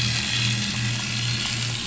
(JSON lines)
{"label": "anthrophony, boat engine", "recorder": "SoundTrap 500"}